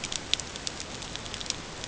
{"label": "ambient", "recorder": "HydroMoth"}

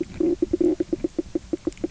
{"label": "biophony, knock croak", "recorder": "SoundTrap 300"}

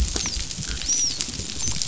{"label": "biophony, dolphin", "recorder": "SoundTrap 500"}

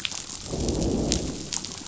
{"label": "biophony, growl", "recorder": "SoundTrap 500"}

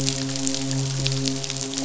{"label": "biophony, midshipman", "recorder": "SoundTrap 500"}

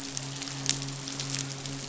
{"label": "biophony, midshipman", "recorder": "SoundTrap 500"}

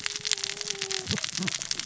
{"label": "biophony, cascading saw", "recorder": "SoundTrap 600 or HydroMoth"}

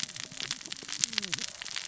{"label": "biophony, cascading saw", "recorder": "SoundTrap 600 or HydroMoth"}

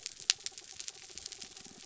{"label": "anthrophony, mechanical", "recorder": "SoundTrap 300"}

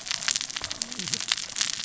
{"label": "biophony, cascading saw", "recorder": "SoundTrap 600 or HydroMoth"}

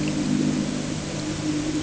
{"label": "anthrophony, boat engine", "recorder": "HydroMoth"}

